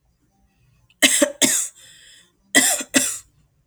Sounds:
Cough